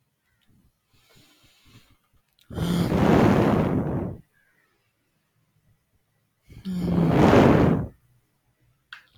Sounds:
Sigh